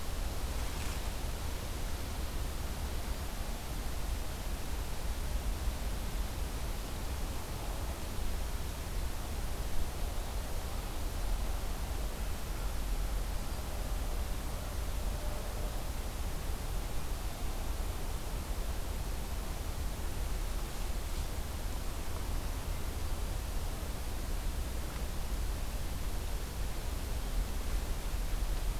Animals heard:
forest ambience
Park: Acadia National Park